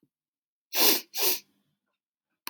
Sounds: Sniff